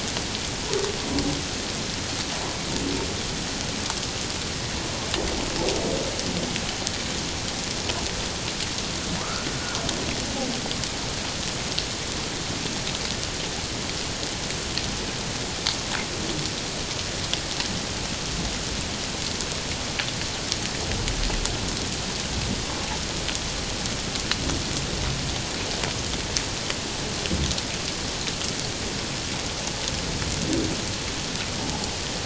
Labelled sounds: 9.2	9.5	humpback whale, 0.91 to 1.5 kHz

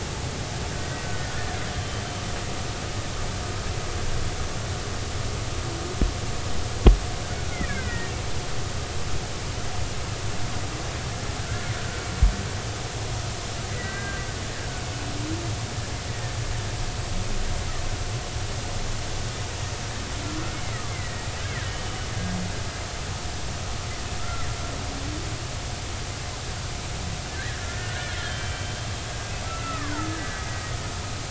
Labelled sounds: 0.7	1.0	killer whale, Bigg's (transient), 1.5 to 1.7 kHz
1.7	2.0	killer whale, Bigg's (transient), 3.0 to 3.2 kHz
7.6	8.1	killer whale, Bigg's (transient), 1.4 to 2.5 kHz
11.4	11.7	killer whale, Bigg's (transient), 1.3 to 1.8 kHz
13.7	14.2	killer whale, Bigg's (transient), 1.5 to 2.0 kHz
16.1	16.3	killer whale, Bigg's (transient), 1.7 to 2.0 kHz
20.7	21.3	killer whale, Bigg's (transient), 1.1 to 2.2 kHz
24.2	24.5	killer whale, Bigg's (transient), 1.2 to 1.4 kHz
27.4	28.9	killer whale, Bigg's (transient), 1.4 to 3.3 kHz
29.4	30.1	killer whale, Bigg's (transient), 0.83 to 2.8 kHz

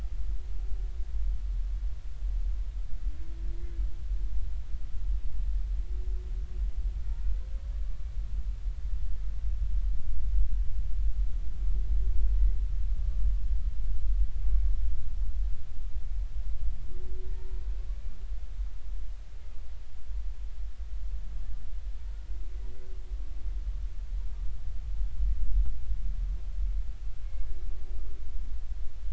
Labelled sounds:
17.3	17.6	humpback whale, 0.86 to 1.9 kHz

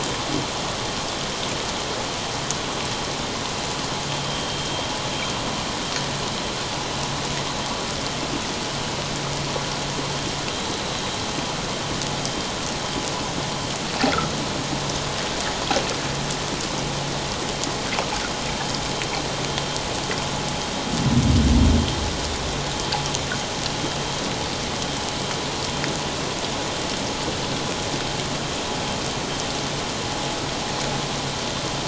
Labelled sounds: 4.3	4.6	vessel noise, 3.1 to 3.2 kHz

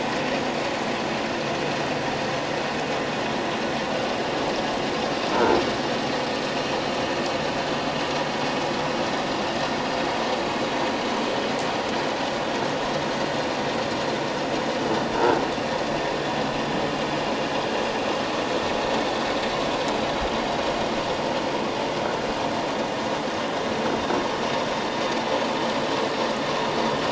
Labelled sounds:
5.3	5.6	croaking sound likely from a nearby submerged object, 1.3 to 1.6 kHz

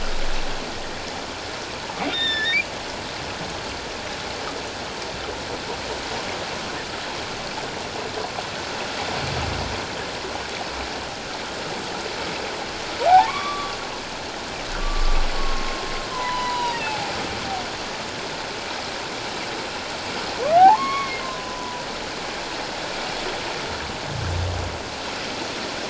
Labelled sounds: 2.1	2.7	humpback whale, 1.7 to 5.6 kHz
13.1	13.8	humpback whale, 0.78 to 2.3 kHz
14.8	15.9	humpback whale, 1.0 to 1.2 kHz
16.1	17.0	humpback whale, 0.88 to 5.0 kHz
20.6	21.9	humpback whale, 0.78 to 4.4 kHz

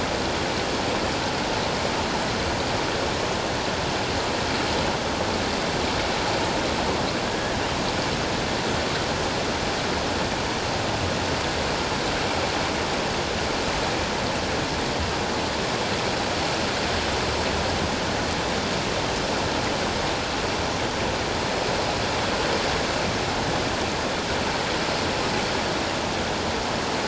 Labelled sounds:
7.2	7.5	killer whale, northern resident, A clan, AA subclan, 1.6 to 1.8 kHz

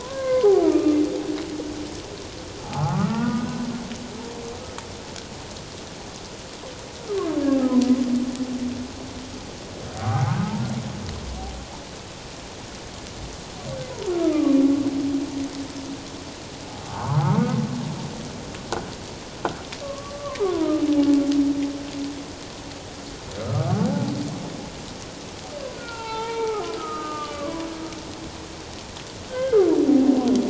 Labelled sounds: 0.0	1.0	humpback whale, 0.94 to 1.7 kHz
2.7	3.6	humpback whale, 0.88 to 2.0 kHz
10.0	10.4	humpback whale, 0.78 to 0.97 kHz
14.3	14.6	humpback whale, 1.1 to 1.3 kHz
16.9	17.4	humpback whale, 0.78 to 1.5 kHz
19.8	20.5	humpback whale, 0.78 to 1.2 kHz
23.4	24.1	humpback whale, 0.78 to 1.5 kHz
25.8	27.7	humpback whale, 0.78 to 3.7 kHz
29.3	30.3	humpback whale, 0.78 to 2.1 kHz

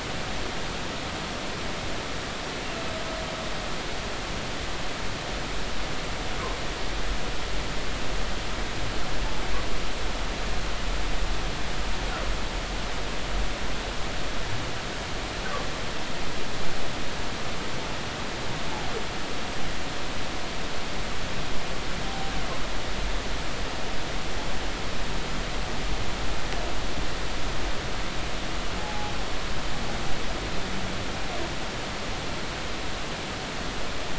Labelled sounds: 28.8	29.1	humpback whale, 0.80 to 0.90 kHz

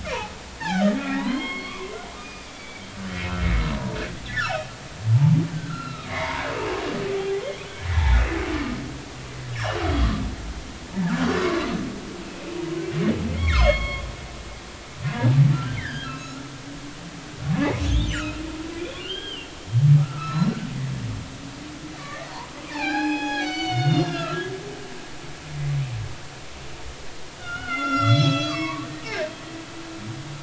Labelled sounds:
0.6	2.9	humpback whale, 0.80 to 5.0 kHz
4.3	4.7	humpback whale, 1.2 to 3.2 kHz
5.1	5.4	humpback whale, 0.83 to 1.0 kHz
5.7	6.5	humpback whale, 0.86 to 4.2 kHz
7.2	7.8	humpback whale, 0.80 to 3.5 kHz
9.5	9.8	humpback whale, 2.8 to 3.0 kHz
10.9	11.7	humpback whale, 0.83 to 1.8 kHz
12.2	12.6	humpback whale, 2.4 to 2.7 kHz
13.3	14.1	humpback whale, 0.96 to 4.5 kHz
15.6	16.4	humpback whale, 1.2 to 4.2 kHz
17.8	19.4	humpback whale, 1.4 to 3.7 kHz
19.9	20.6	humpback whale, 1.2 to 5.6 kHz
22.0	22.3	humpback whale, 1.7 to 2.0 kHz
22.7	24.4	humpback whale, 0.80 to 6.8 kHz
25.0	25.4	humpback whale, 1.2 to 1.4 kHz
27.4	29.3	humpback whale, 0.90 to 7.5 kHz

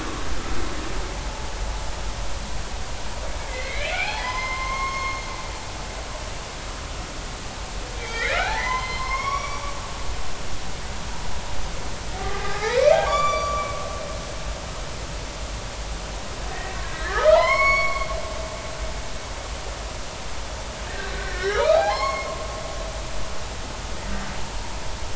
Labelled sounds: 1.3	1.5	humpback whale, 0.83 to 0.93 kHz
3.4	5.2	humpback whale, 0.80 to 6.5 kHz
8.0	9.6	humpback whale, 0.80 to 5.8 kHz
12.2	13.7	humpback whale, 0.80 to 7.1 kHz
16.5	18.1	humpback whale, 0.86 to 5.6 kHz
21.1	22.3	humpback whale, 0.80 to 5.5 kHz

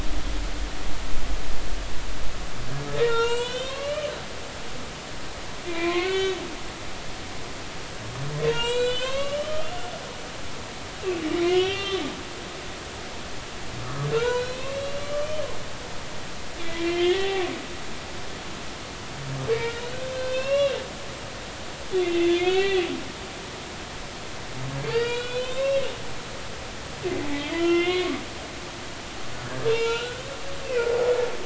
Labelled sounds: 3.0	4.1	humpback whale, 0.86 to 8.0 kHz
5.7	6.4	humpback whale, 0.96 to 3.5 kHz
8.4	9.7	humpback whale, 0.90 to 8.0 kHz
11.3	12.1	humpback whale, 1.1 to 4.0 kHz
14.1	15.4	humpback whale, 0.90 to 3.1 kHz
16.8	17.4	humpback whale, 0.80 to 3.9 kHz
19.5	20.8	humpback whale, 0.96 to 4.0 kHz
22.0	22.9	humpback whale, 1.8 to 4.0 kHz
24.9	25.8	humpback whale, 0.99 to 4.8 kHz
27.3	28.2	humpback whale, 1.1 to 3.3 kHz
29.7	30.2	humpback whale, 0.86 to 2.9 kHz

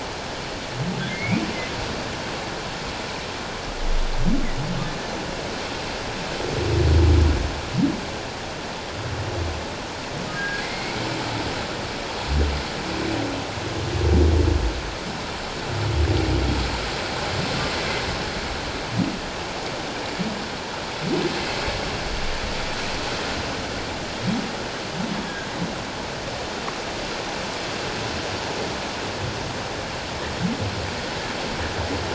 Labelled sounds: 1.1	1.4	humpback whale, 2.0 to 2.5 kHz
10.3	11.0	humpback whale, 1.6 to 2.3 kHz

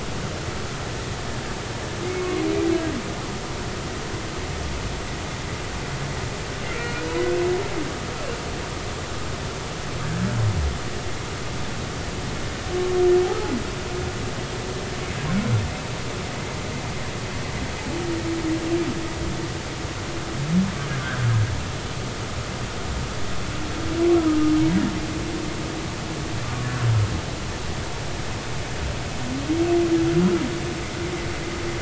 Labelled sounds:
6.7	7.0	humpback whale, 1.3 to 1.5 kHz
24.7	24.9	humpback whale, 1.7 to 2.0 kHz

